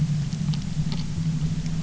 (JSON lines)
{"label": "anthrophony, boat engine", "recorder": "SoundTrap 300"}